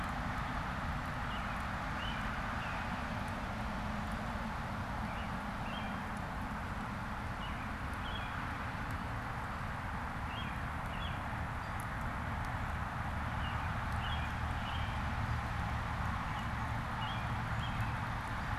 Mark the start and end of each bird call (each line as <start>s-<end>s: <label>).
0.0s-3.0s: American Robin (Turdus migratorius)
4.8s-18.6s: American Robin (Turdus migratorius)